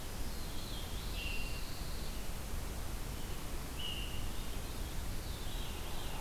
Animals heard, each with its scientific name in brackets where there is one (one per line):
Veery (Catharus fuscescens)
Pine Warbler (Setophaga pinus)